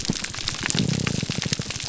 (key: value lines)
label: biophony
recorder: SoundTrap 300